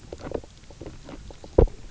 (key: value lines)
label: biophony, knock croak
recorder: SoundTrap 300